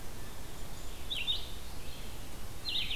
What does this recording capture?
Red-eyed Vireo